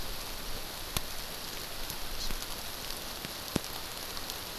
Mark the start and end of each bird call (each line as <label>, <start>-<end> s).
Hawaii Amakihi (Chlorodrepanis virens), 2.2-2.3 s